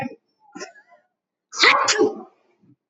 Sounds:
Sneeze